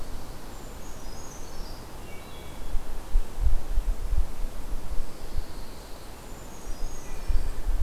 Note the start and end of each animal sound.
0.2s-2.2s: Brown Creeper (Certhia americana)
1.7s-3.0s: Wood Thrush (Hylocichla mustelina)
4.8s-6.2s: Pine Warbler (Setophaga pinus)
6.1s-7.8s: Brown Creeper (Certhia americana)
6.9s-7.8s: Wood Thrush (Hylocichla mustelina)

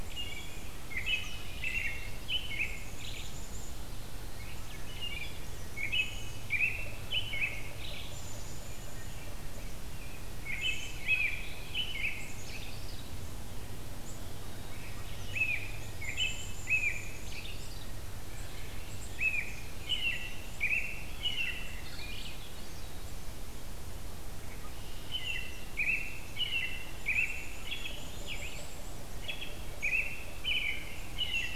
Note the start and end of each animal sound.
0.0s-2.0s: Black-capped Chickadee (Poecile atricapillus)
0.1s-3.5s: American Robin (Turdus migratorius)
2.5s-3.7s: Black-capped Chickadee (Poecile atricapillus)
4.8s-8.4s: American Robin (Turdus migratorius)
5.3s-6.5s: Black-capped Chickadee (Poecile atricapillus)
7.9s-9.2s: Black-capped Chickadee (Poecile atricapillus)
10.2s-13.3s: American Robin (Turdus migratorius)
10.5s-11.2s: Black-capped Chickadee (Poecile atricapillus)
12.1s-13.1s: Black-capped Chickadee (Poecile atricapillus)
13.9s-21.6s: Black-capped Chickadee (Poecile atricapillus)
15.1s-18.1s: American Robin (Turdus migratorius)
19.1s-22.4s: American Robin (Turdus migratorius)
22.0s-23.3s: Swainson's Thrush (Catharus ustulatus)
24.9s-28.8s: American Robin (Turdus migratorius)
25.6s-31.5s: Black-capped Chickadee (Poecile atricapillus)
29.2s-31.6s: American Robin (Turdus migratorius)

